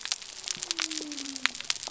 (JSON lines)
{"label": "biophony", "recorder": "SoundTrap 300"}